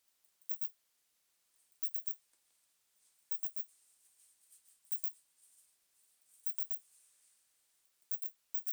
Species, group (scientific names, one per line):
Poecilimon zimmeri
Orthoptera